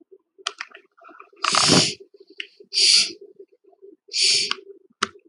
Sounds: Sneeze